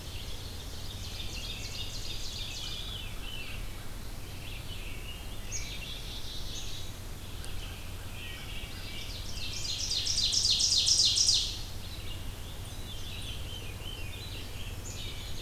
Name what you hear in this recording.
Ovenbird, Red-eyed Vireo, Veery, American Crow, American Robin, Black-capped Chickadee, Wood Thrush